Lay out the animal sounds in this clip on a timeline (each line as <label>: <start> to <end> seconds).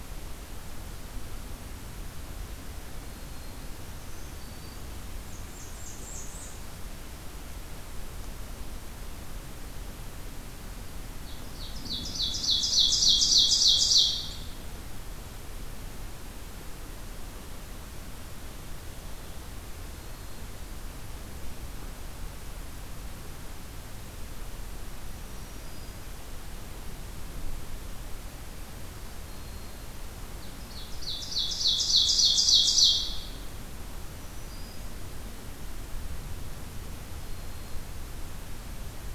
Black-throated Green Warbler (Setophaga virens): 2.9 to 4.9 seconds
Blackburnian Warbler (Setophaga fusca): 5.2 to 6.7 seconds
Ovenbird (Seiurus aurocapilla): 11.2 to 14.6 seconds
Black-throated Green Warbler (Setophaga virens): 19.8 to 20.6 seconds
Black-throated Green Warbler (Setophaga virens): 25.0 to 26.2 seconds
Black-throated Green Warbler (Setophaga virens): 29.2 to 30.0 seconds
Ovenbird (Seiurus aurocapilla): 30.5 to 33.6 seconds
Black-throated Green Warbler (Setophaga virens): 33.9 to 34.9 seconds
Black-throated Green Warbler (Setophaga virens): 37.1 to 38.0 seconds